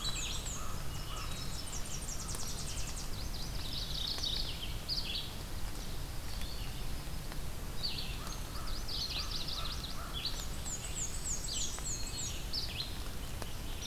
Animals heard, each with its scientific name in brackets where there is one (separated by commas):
Yellow-rumped Warbler (Setophaga coronata), American Crow (Corvus brachyrhynchos), Mourning Warbler (Geothlypis philadelphia), Tennessee Warbler (Leiothlypis peregrina), Red-eyed Vireo (Vireo olivaceus), Black-and-white Warbler (Mniotilta varia), Wood Thrush (Hylocichla mustelina)